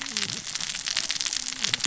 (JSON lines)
{"label": "biophony, cascading saw", "recorder": "SoundTrap 600 or HydroMoth"}